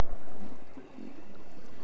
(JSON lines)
{"label": "anthrophony, boat engine", "recorder": "SoundTrap 300"}